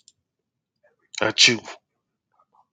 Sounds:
Sneeze